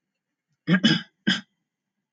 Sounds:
Throat clearing